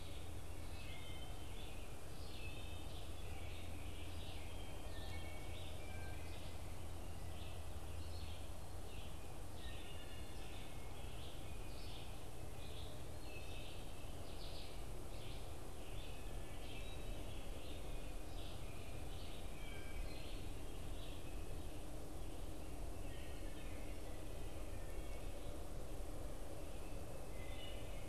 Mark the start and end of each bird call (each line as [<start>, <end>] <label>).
[0.00, 27.84] Wood Thrush (Hylocichla mustelina)